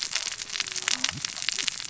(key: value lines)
label: biophony, cascading saw
recorder: SoundTrap 600 or HydroMoth